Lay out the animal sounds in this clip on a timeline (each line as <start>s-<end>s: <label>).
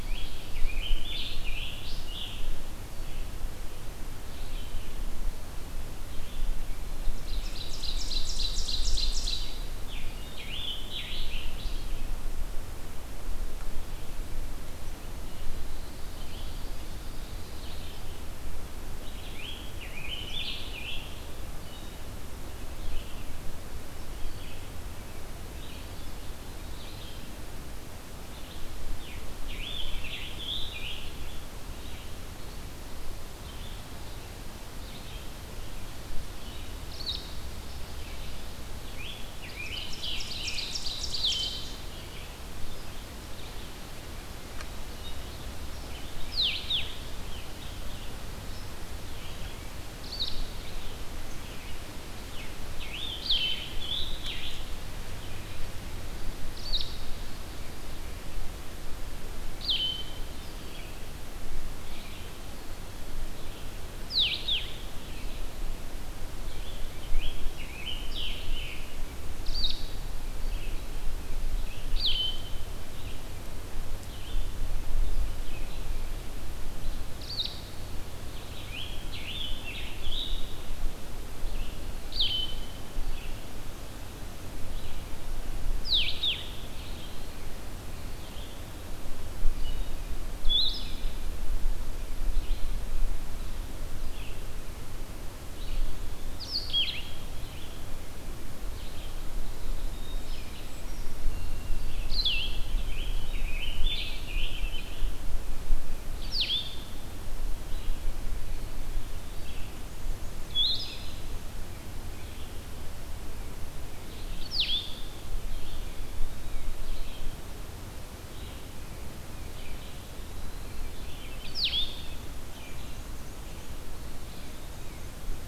0.0s-1.0s: Ovenbird (Seiurus aurocapilla)
0.0s-2.6s: Scarlet Tanager (Piranga olivacea)
0.0s-18.3s: Red-eyed Vireo (Vireo olivaceus)
7.1s-9.6s: Ovenbird (Seiurus aurocapilla)
9.7s-12.1s: Scarlet Tanager (Piranga olivacea)
15.6s-17.9s: Ovenbird (Seiurus aurocapilla)
19.2s-21.4s: Scarlet Tanager (Piranga olivacea)
21.6s-39.3s: Blue-headed Vireo (Vireo solitarius)
28.8s-31.3s: Scarlet Tanager (Piranga olivacea)
39.4s-41.8s: Ovenbird (Seiurus aurocapilla)
46.1s-77.8s: Blue-headed Vireo (Vireo solitarius)
52.6s-54.7s: Scarlet Tanager (Piranga olivacea)
66.4s-69.1s: Scarlet Tanager (Piranga olivacea)
78.3s-80.8s: Scarlet Tanager (Piranga olivacea)
81.4s-102.7s: Blue-headed Vireo (Vireo solitarius)
102.7s-105.2s: Scarlet Tanager (Piranga olivacea)
106.1s-120.0s: Blue-headed Vireo (Vireo solitarius)
109.6s-111.4s: Black-and-white Warbler (Mniotilta varia)
115.4s-116.6s: Eastern Wood-Pewee (Contopus virens)
119.5s-121.0s: Eastern Wood-Pewee (Contopus virens)
121.5s-122.2s: Blue-headed Vireo (Vireo solitarius)
122.4s-123.7s: Black-and-white Warbler (Mniotilta varia)